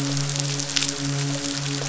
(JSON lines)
{"label": "biophony, midshipman", "recorder": "SoundTrap 500"}